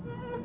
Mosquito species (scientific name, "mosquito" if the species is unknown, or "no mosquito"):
Aedes albopictus